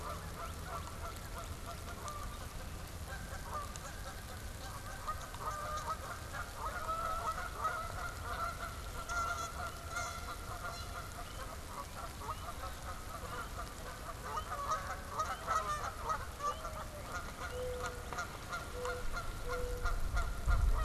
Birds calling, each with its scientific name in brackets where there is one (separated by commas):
Mourning Dove (Zenaida macroura), Canada Goose (Branta canadensis), Northern Cardinal (Cardinalis cardinalis)